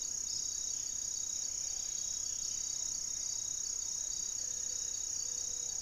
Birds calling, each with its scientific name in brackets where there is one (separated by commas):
unidentified bird, Amazonian Trogon (Trogon ramonianus), Ruddy Pigeon (Patagioenas subvinacea), Gray-fronted Dove (Leptotila rufaxilla)